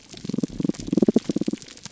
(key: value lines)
label: biophony, damselfish
recorder: SoundTrap 300